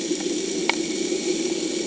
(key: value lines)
label: anthrophony, boat engine
recorder: HydroMoth